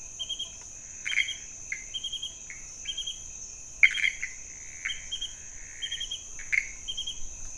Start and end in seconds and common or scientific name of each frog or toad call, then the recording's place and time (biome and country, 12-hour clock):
0.4	7.5	Pithecopus azureus
Cerrado, Brazil, 2:00am